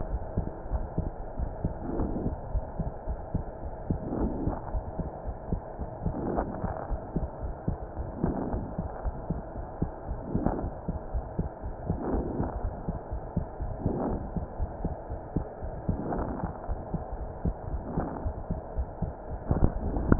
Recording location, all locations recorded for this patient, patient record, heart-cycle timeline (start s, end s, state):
pulmonary valve (PV)
aortic valve (AV)+pulmonary valve (PV)+tricuspid valve (TV)+mitral valve (MV)
#Age: Child
#Sex: Female
#Height: 115.0 cm
#Weight: 19.6 kg
#Pregnancy status: False
#Murmur: Absent
#Murmur locations: nan
#Most audible location: nan
#Systolic murmur timing: nan
#Systolic murmur shape: nan
#Systolic murmur grading: nan
#Systolic murmur pitch: nan
#Systolic murmur quality: nan
#Diastolic murmur timing: nan
#Diastolic murmur shape: nan
#Diastolic murmur grading: nan
#Diastolic murmur pitch: nan
#Diastolic murmur quality: nan
#Outcome: Normal
#Campaign: 2015 screening campaign
0.00	0.20	S1
0.20	0.36	systole
0.36	0.52	S2
0.52	0.70	diastole
0.70	0.88	S1
0.88	1.04	systole
1.04	1.14	S2
1.14	1.36	diastole
1.36	1.50	S1
1.50	1.62	systole
1.62	1.76	S2
1.76	1.94	diastole
1.94	2.10	S1
2.10	2.24	systole
2.24	2.38	S2
2.38	2.52	diastole
2.52	2.64	S1
2.64	2.78	systole
2.78	2.92	S2
2.92	3.08	diastole
3.08	3.20	S1
3.20	3.32	systole
3.32	3.46	S2
3.46	3.64	diastole
3.64	3.74	S1
3.74	3.88	systole
3.88	4.02	S2
4.02	4.18	diastole
4.18	4.32	S1
4.32	4.40	systole
4.40	4.56	S2
4.56	4.72	diastole
4.72	4.84	S1
4.84	5.00	systole
5.00	5.10	S2
5.10	5.26	diastole
5.26	5.34	S1
5.34	5.48	systole
5.48	5.64	S2
5.64	5.80	diastole
5.80	5.88	S1
5.88	6.04	systole
6.04	6.14	S2
6.14	6.32	diastole
6.32	6.48	S1
6.48	6.62	systole
6.62	6.74	S2
6.74	6.90	diastole
6.90	7.00	S1
7.00	7.16	systole
7.16	7.30	S2
7.30	7.44	diastole
7.44	7.54	S1
7.54	7.66	systole
7.66	7.80	S2
7.80	7.98	diastole
7.98	8.10	S1
8.10	8.22	systole
8.22	8.36	S2
8.36	8.50	diastole
8.50	8.64	S1
8.64	8.74	systole
8.74	8.86	S2
8.86	9.04	diastole
9.04	9.16	S1
9.16	9.28	systole
9.28	9.42	S2
9.42	9.58	diastole
9.58	9.66	S1
9.66	9.80	systole
9.80	9.90	S2
9.90	10.08	diastole
10.08	10.20	S1
10.20	10.30	systole
10.30	10.42	S2
10.42	10.58	diastole
10.58	10.74	S1
10.74	10.86	systole
10.86	10.96	S2
10.96	11.12	diastole
11.12	11.26	S1
11.26	11.40	systole
11.40	11.50	S2
11.50	11.66	diastole
11.66	11.74	S1
11.74	11.88	systole
11.88	11.98	S2
11.98	12.12	diastole
12.12	12.26	S1
12.26	12.36	systole
12.36	12.48	S2
12.48	12.62	diastole
12.62	12.76	S1
12.76	12.84	systole
12.84	12.96	S2
12.96	13.12	diastole
13.12	13.22	S1
13.22	13.32	systole
13.32	13.48	S2
13.48	13.62	diastole
13.62	13.72	S1
13.72	13.82	systole
13.82	13.94	S2
13.94	14.10	diastole
14.10	14.22	S1
14.22	14.34	systole
14.34	14.44	S2
14.44	14.60	diastole
14.60	14.70	S1
14.70	14.82	systole
14.82	14.96	S2
14.96	15.12	diastole
15.12	15.20	S1
15.20	15.34	systole
15.34	15.48	S2
15.48	15.64	diastole
15.64	15.72	S1
15.72	15.84	systole
15.84	15.96	S2
15.96	16.10	diastole
16.10	16.28	S1
16.28	16.42	systole
16.42	16.54	S2
16.54	16.70	diastole
16.70	16.80	S1
16.80	16.94	systole
16.94	17.06	S2
17.06	17.22	diastole
17.22	17.30	S1
17.30	17.46	systole
17.46	17.56	S2
17.56	17.72	diastole
17.72	17.84	S1
17.84	17.96	systole
17.96	18.08	S2
18.08	18.24	diastole
18.24	18.38	S1
18.38	18.48	systole
18.48	18.60	S2
18.60	18.78	diastole
18.78	18.88	S1
18.88	19.00	systole
19.00	19.14	S2
19.14	19.32	diastole
19.32	19.40	S1
19.40	19.52	systole
19.52	19.68	S2
19.68	19.84	diastole
19.84	20.02	S1
20.02	20.08	systole
20.08	20.19	S2